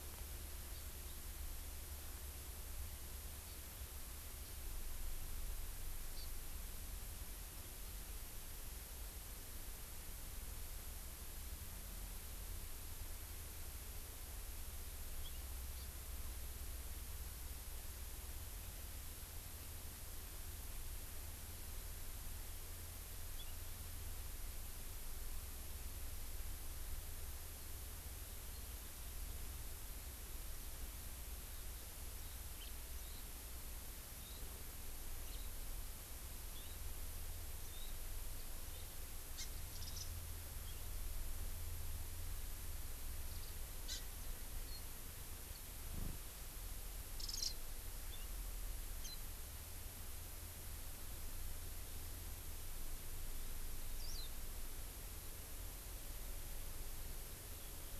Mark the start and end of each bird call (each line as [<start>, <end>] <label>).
[6.14, 6.24] Hawaii Amakihi (Chlorodrepanis virens)
[39.34, 39.44] Hawaii Amakihi (Chlorodrepanis virens)
[39.64, 40.04] Warbling White-eye (Zosterops japonicus)
[43.84, 44.04] Hawaii Amakihi (Chlorodrepanis virens)
[47.14, 47.54] Warbling White-eye (Zosterops japonicus)